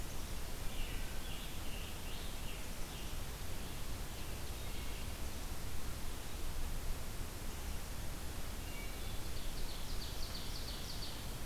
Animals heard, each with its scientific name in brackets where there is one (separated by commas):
Wood Thrush (Hylocichla mustelina), Ovenbird (Seiurus aurocapilla), Scarlet Tanager (Piranga olivacea)